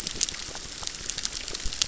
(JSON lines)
{"label": "biophony, crackle", "recorder": "SoundTrap 600"}